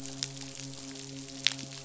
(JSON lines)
{"label": "biophony, midshipman", "recorder": "SoundTrap 500"}